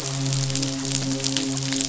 {"label": "biophony, midshipman", "recorder": "SoundTrap 500"}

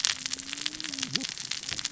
{"label": "biophony, cascading saw", "recorder": "SoundTrap 600 or HydroMoth"}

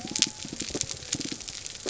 {"label": "biophony", "recorder": "SoundTrap 300"}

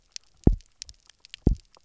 {"label": "biophony, double pulse", "recorder": "SoundTrap 300"}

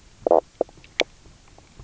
{"label": "biophony, knock croak", "recorder": "SoundTrap 300"}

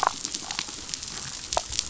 {"label": "biophony, damselfish", "recorder": "SoundTrap 500"}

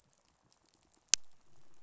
{"label": "biophony, pulse", "recorder": "SoundTrap 500"}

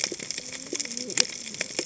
{"label": "biophony, cascading saw", "recorder": "HydroMoth"}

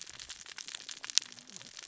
{"label": "biophony, cascading saw", "recorder": "SoundTrap 600 or HydroMoth"}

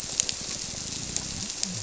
{"label": "biophony", "recorder": "SoundTrap 300"}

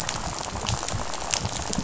{"label": "biophony, rattle", "recorder": "SoundTrap 500"}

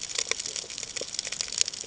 {"label": "ambient", "recorder": "HydroMoth"}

